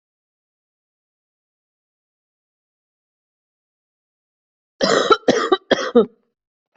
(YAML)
expert_labels:
- quality: good
  cough_type: wet
  dyspnea: false
  wheezing: false
  stridor: false
  choking: false
  congestion: false
  nothing: true
  diagnosis: lower respiratory tract infection
  severity: mild
age: 33
gender: female
respiratory_condition: false
fever_muscle_pain: false
status: healthy